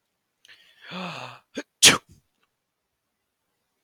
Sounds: Sneeze